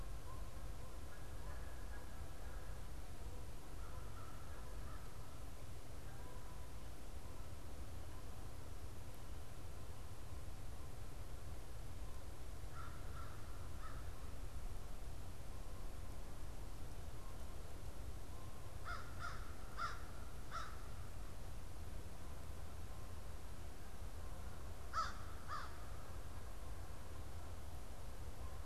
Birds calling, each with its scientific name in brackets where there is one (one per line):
American Crow (Corvus brachyrhynchos)
Canada Goose (Branta canadensis)